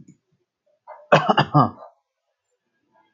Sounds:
Cough